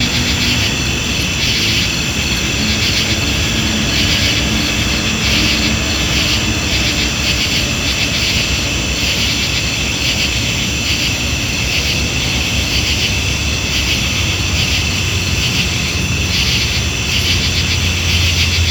Are there insects making noise?
yes